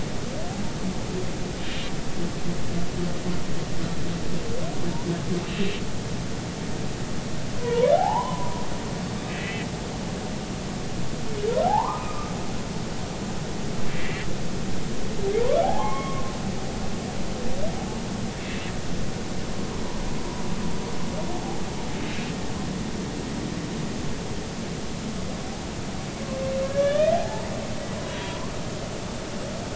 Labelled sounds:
1.6	1.9	humpback whale, 2.8 to 2.9 kHz
5.5	5.8	humpback whale, 2.6 to 2.8 kHz
7.6	8.5	humpback whale, 0.80 to 1.1 kHz
9.3	9.7	humpback whale, 1.9 to 2.7 kHz
11.6	12.3	humpback whale, 0.80 to 1.3 kHz
13.9	14.3	humpback whale, 1.9 to 2.4 kHz
15.6	16.3	humpback whale, 0.80 to 2.2 kHz
26.6	27.5	humpback whale, 0.80 to 3.5 kHz
28.2	28.5	humpback whale, 0.93 to 1.2 kHz

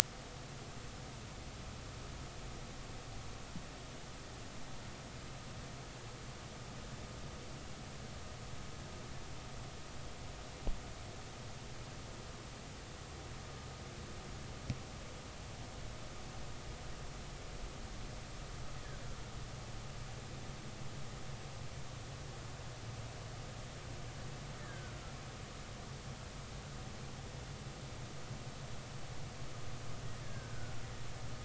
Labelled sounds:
24.6	25.0	killer whale, Bigg's (transient), 1.4 to 1.8 kHz
30.2	30.8	killer whale, Bigg's (transient), 1.4 to 1.8 kHz

